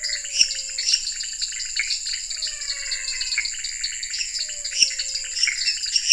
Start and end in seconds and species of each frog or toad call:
0.0	6.1	Dendropsophus nanus
0.0	6.1	Leptodactylus podicipinus
0.1	1.1	Dendropsophus minutus
0.1	6.1	Physalaemus albonotatus
4.3	6.1	Dendropsophus minutus
9pm

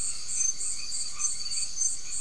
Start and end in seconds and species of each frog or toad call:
0.0	2.2	Boana albomarginata
0.4	0.8	Leptodactylus latrans
~9pm

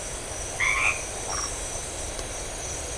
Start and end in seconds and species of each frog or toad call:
0.5	1.1	Boana albomarginata
1.2	1.5	Phyllomedusa distincta
~11pm

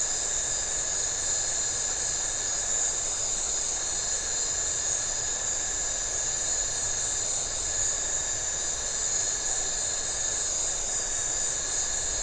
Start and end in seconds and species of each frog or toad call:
0.6	5.6	Leptodactylus notoaktites
~8pm

